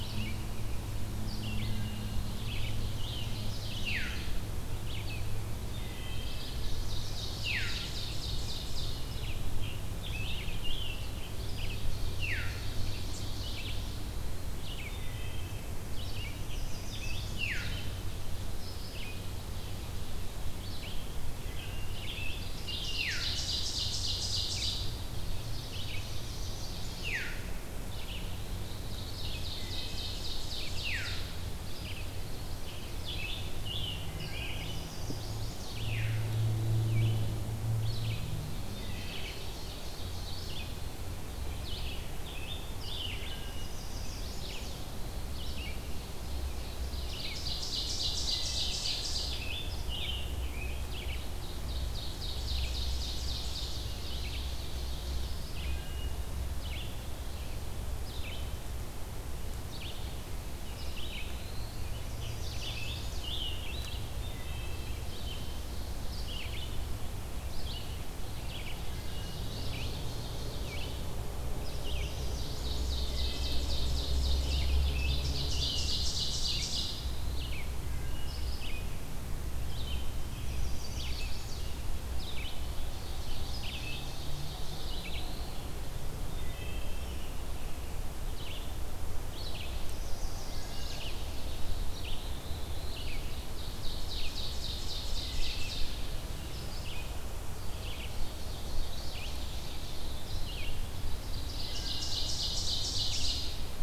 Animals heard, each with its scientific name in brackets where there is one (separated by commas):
Black-throated Blue Warbler (Setophaga caerulescens), Chestnut-sided Warbler (Setophaga pensylvanica), Ovenbird (Seiurus aurocapilla), Scarlet Tanager (Piranga olivacea), Wood Thrush (Hylocichla mustelina), Veery (Catharus fuscescens), Red-eyed Vireo (Vireo olivaceus)